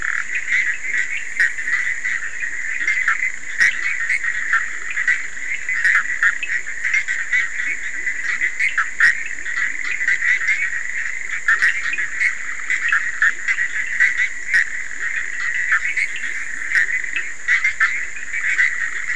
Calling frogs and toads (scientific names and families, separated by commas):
Boana bischoffi (Hylidae), Leptodactylus latrans (Leptodactylidae), Sphaenorhynchus surdus (Hylidae)